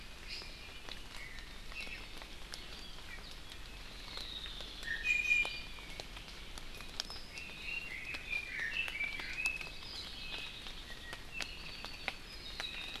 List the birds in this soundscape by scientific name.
Drepanis coccinea, Loxops mana, Leiothrix lutea, Himatione sanguinea